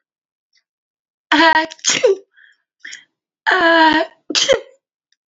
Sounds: Sneeze